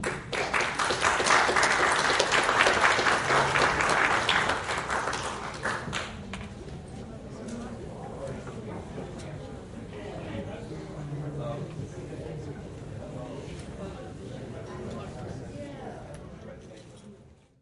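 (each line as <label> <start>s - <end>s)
Loud rhythmic applause. 0.0s - 6.6s
People clapping loudly. 0.0s - 6.6s
People talking quietly in the distance. 6.7s - 17.6s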